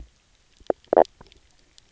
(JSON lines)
{"label": "biophony, knock croak", "recorder": "SoundTrap 300"}